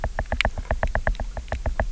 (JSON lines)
{"label": "biophony, knock", "recorder": "SoundTrap 300"}